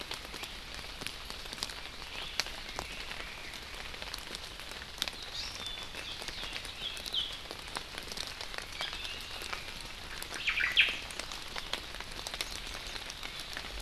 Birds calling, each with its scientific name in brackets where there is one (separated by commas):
Omao (Myadestes obscurus), Hawaii Amakihi (Chlorodrepanis virens)